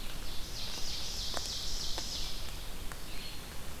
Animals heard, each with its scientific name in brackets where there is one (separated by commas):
Ovenbird (Seiurus aurocapilla), Red-eyed Vireo (Vireo olivaceus)